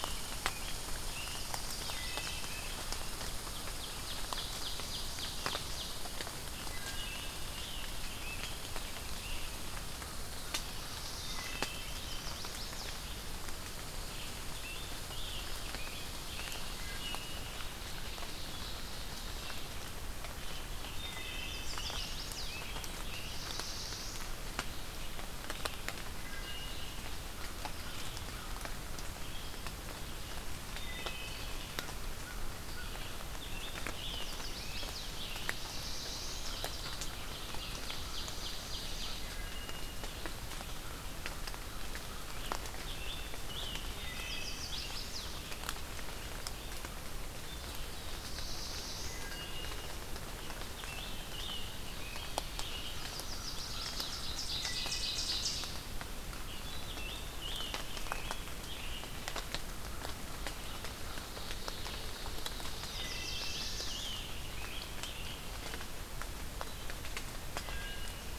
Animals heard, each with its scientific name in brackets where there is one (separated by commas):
Chestnut-sided Warbler (Setophaga pensylvanica), American Crow (Corvus brachyrhynchos), Ovenbird (Seiurus aurocapilla), Scarlet Tanager (Piranga olivacea), Red Squirrel (Tamiasciurus hudsonicus), Red-eyed Vireo (Vireo olivaceus), Wood Thrush (Hylocichla mustelina), Black-throated Blue Warbler (Setophaga caerulescens)